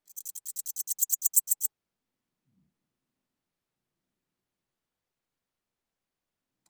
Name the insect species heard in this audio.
Pholidoptera littoralis